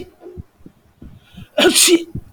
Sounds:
Sneeze